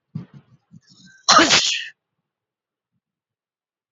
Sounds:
Sneeze